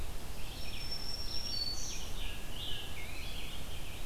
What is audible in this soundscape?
Red-eyed Vireo, Black-throated Green Warbler, Scarlet Tanager